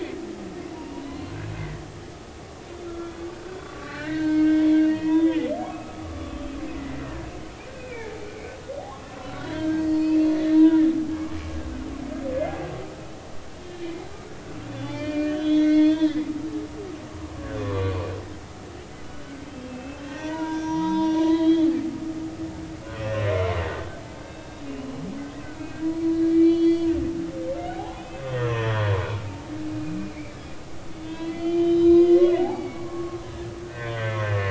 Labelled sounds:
0.7	1.3	humpback whale, 0.90 to 4.3 kHz
2.8	6.6	humpback whale, 0.90 to 4.4 kHz
7.0	8.2	humpback whale, 1.4 to 2.6 kHz
9.4	10.8	humpback whale, 0.90 to 6.0 kHz
14.7	16.8	humpback whale, 1.7 to 4.6 kHz
17.6	18.0	humpback whale, 0.96 to 1.2 kHz
19.7	21.7	humpback whale, 0.83 to 5.8 kHz
22.9	23.5	humpback whale, 2.0 to 2.8 kHz
24.1	24.9	humpback whale, 1.5 to 3.8 kHz
25.4	27.1	humpback whale, 1.3 to 4.7 kHz
27.6	29.3	humpback whale, 0.80 to 4.0 kHz
29.8	30.4	humpback whale, 2.0 to 2.6 kHz
30.9	34.4	humpback whale, 0.80 to 4.7 kHz

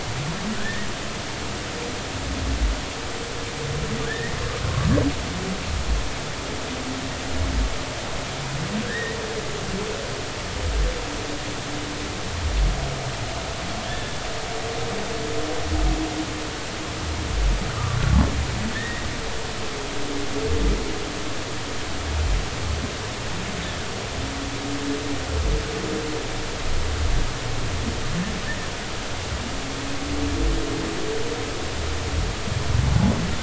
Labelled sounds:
0.6	0.9	humpback whale, 1.4 to 2.0 kHz
4.1	4.3	humpback whale, 1.6 to 2.0 kHz
8.8	9.2	humpback whale, 1.5 to 2.0 kHz
13.9	14.2	humpback whale, 1.7 to 1.8 kHz
18.7	19.0	humpback whale, 1.7 to 2.0 kHz

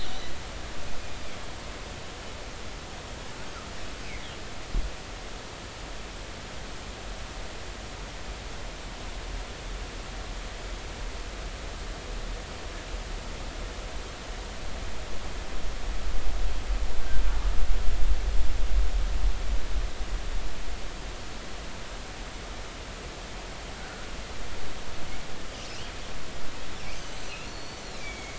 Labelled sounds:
25.7	25.9	killer whale, northern resident, G clan, 2.4 to 3.3 kHz
27.5	28.3	killer whale, northern resident, G clan, 2.1 to 4.6 kHz

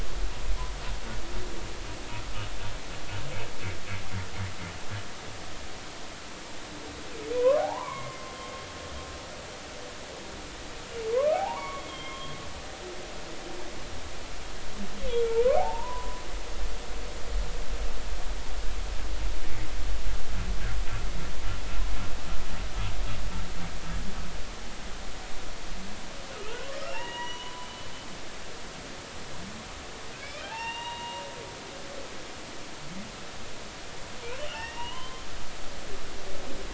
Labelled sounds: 7.4	8.2	humpback whale, 0.80 to 2.4 kHz
11.1	12.4	humpback whale, 0.80 to 3.3 kHz
15.3	16.2	humpback whale, 0.80 to 1.3 kHz
26.9	27.9	humpback whale, 0.83 to 5.9 kHz
30.2	31.2	humpback whale, 0.80 to 5.8 kHz
34.4	35.3	humpback whale, 0.90 to 3.2 kHz

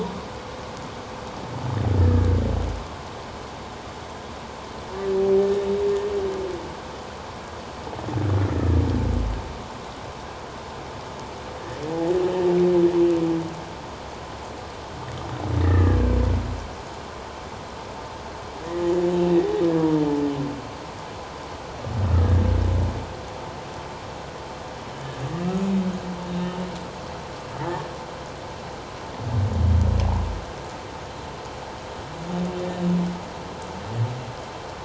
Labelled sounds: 2.0	2.3	humpback whale, 1.6 to 1.8 kHz
5.4	5.7	humpback whale, 1.75 to 1.81 kHz
15.6	16.0	humpback whale, 1.6 to 2.0 kHz
18.7	19.0	humpback whale, 6.8 to 7.1 kHz
26.3	26.7	humpback whale, 2.8 to 3.0 kHz
27.6	27.8	humpback whale, 1.7 to 2.1 kHz

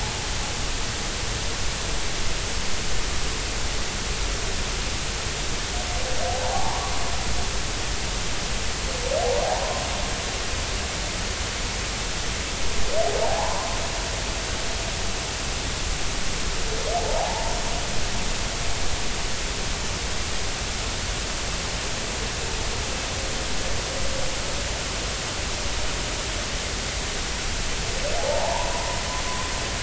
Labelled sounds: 6.3	6.9	humpback whale, 0.80 to 1.2 kHz
13.2	13.7	humpback whale, 0.80 to 1.1 kHz
17.0	17.6	humpback whale, 0.80 to 0.99 kHz
28.2	29.0	humpback whale, 0.80 to 1.1 kHz

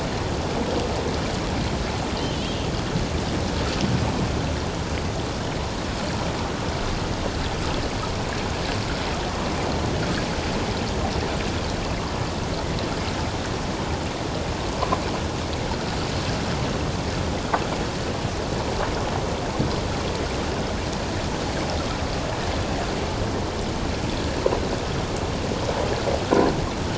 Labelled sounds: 2.2	2.5	Pacific white-sided dolphin, 2.8 to 3.2 kHz

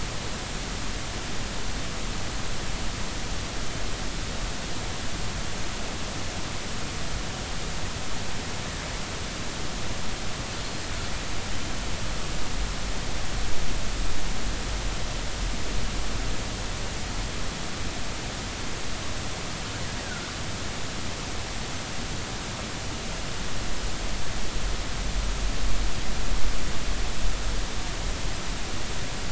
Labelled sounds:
20.0	20.3	killer whale, northern resident, R clan, call N33, 1.3 to 1.6 kHz

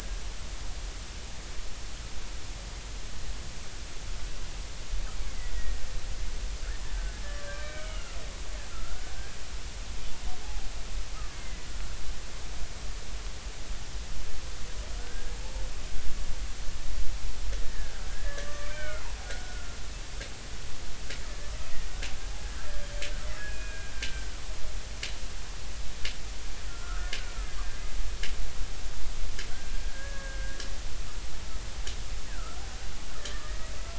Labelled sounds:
5.5	5.8	killer whale, Bigg's (transient), 1.8 to 2.0 kHz
7.5	8.1	killer whale, Bigg's (transient), 1.1 to 3.0 kHz
8.7	9.0	killer whale, Bigg's (transient), 1.2 to 1.5 kHz
11.3	11.7	killer whale, Bigg's (transient), 1.9 to 2.2 kHz
15.0	15.4	killer whale, Bigg's (transient), 1.4 to 1.7 kHz
17.6	19.8	killer whale, Bigg's (transient), 1.1 to 6.3 kHz
23.4	24.3	killer whale, Bigg's (transient), 1.5 to 2.6 kHz
26.7	27.5	killer whale, Bigg's (transient), 1.0 to 1.8 kHz
29.9	30.7	killer whale, Bigg's (transient), 1.5 to 1.8 kHz
32.3	32.6	killer whale, Bigg's (transient), 1.2 to 1.7 kHz
33.2	33.7	killer whale, Bigg's (transient), 1.1 to 2.0 kHz

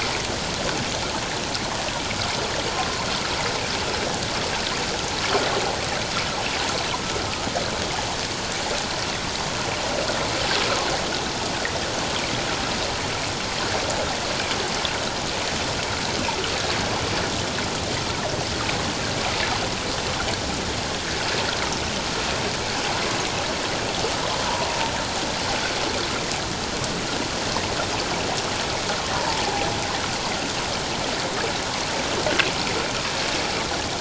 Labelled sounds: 29.1	29.5	humpback whale, 0.84 to 1.0 kHz

